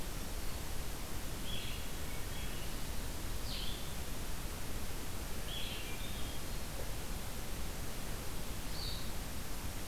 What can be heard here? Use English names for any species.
Blue-headed Vireo